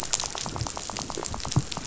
{"label": "biophony, rattle", "recorder": "SoundTrap 500"}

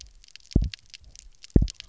{"label": "biophony, double pulse", "recorder": "SoundTrap 300"}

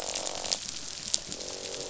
{"label": "biophony, croak", "recorder": "SoundTrap 500"}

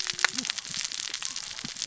{"label": "biophony, cascading saw", "recorder": "SoundTrap 600 or HydroMoth"}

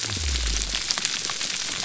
{"label": "biophony", "recorder": "SoundTrap 300"}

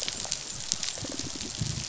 {"label": "biophony, rattle response", "recorder": "SoundTrap 500"}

